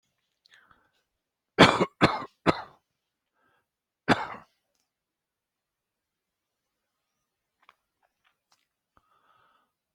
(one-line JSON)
{"expert_labels": [{"quality": "good", "cough_type": "dry", "dyspnea": false, "wheezing": false, "stridor": false, "choking": false, "congestion": false, "nothing": true, "diagnosis": "healthy cough", "severity": "pseudocough/healthy cough"}], "age": 67, "gender": "male", "respiratory_condition": true, "fever_muscle_pain": false, "status": "healthy"}